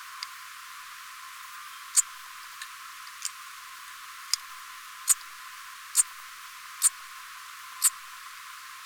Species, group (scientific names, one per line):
Eupholidoptera megastyla
Orthoptera